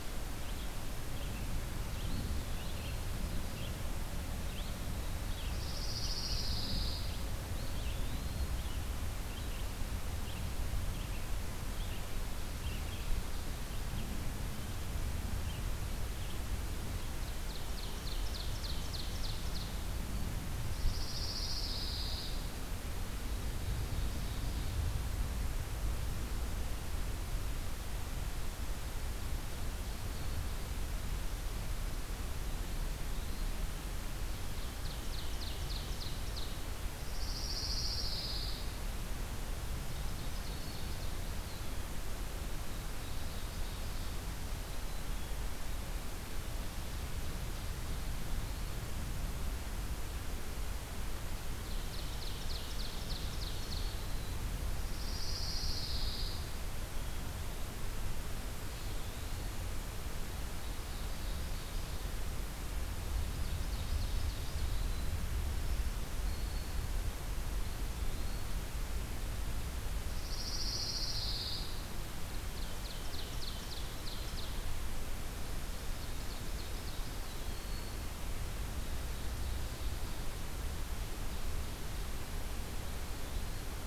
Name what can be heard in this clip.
Red-eyed Vireo, Eastern Wood-Pewee, Pine Warbler, Ovenbird, Black-throated Green Warbler